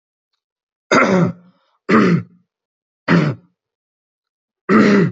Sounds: Throat clearing